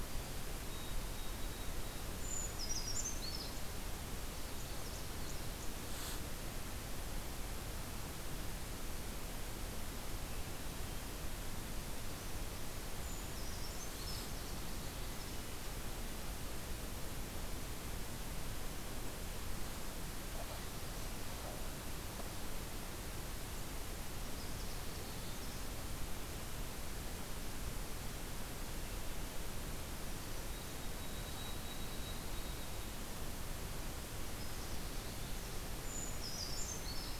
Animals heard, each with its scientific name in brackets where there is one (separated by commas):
Brown Creeper (Certhia americana), White-throated Sparrow (Zonotrichia albicollis), Canada Warbler (Cardellina canadensis)